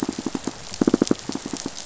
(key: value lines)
label: biophony, rattle response
recorder: SoundTrap 500